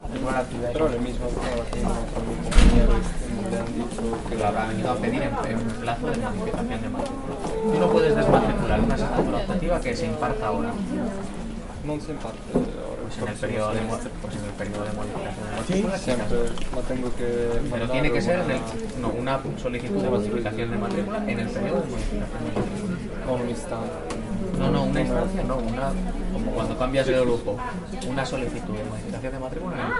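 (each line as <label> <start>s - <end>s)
People speaking Spanish in the background. 0.0s - 30.0s
A door slams. 2.4s - 3.1s
A bell rings. 7.6s - 8.7s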